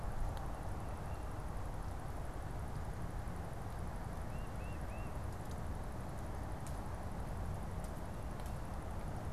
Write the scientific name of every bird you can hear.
Baeolophus bicolor